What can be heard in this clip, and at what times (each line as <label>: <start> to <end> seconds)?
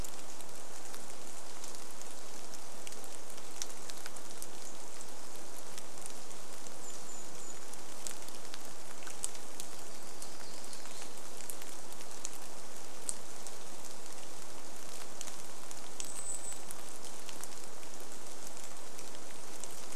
rain: 0 to 20 seconds
Golden-crowned Kinglet call: 6 to 8 seconds
warbler song: 8 to 12 seconds
Golden-crowned Kinglet call: 16 to 18 seconds
Golden-crowned Kinglet song: 18 to 20 seconds